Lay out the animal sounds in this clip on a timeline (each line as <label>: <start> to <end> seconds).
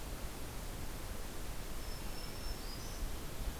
Black-throated Green Warbler (Setophaga virens): 1.7 to 3.1 seconds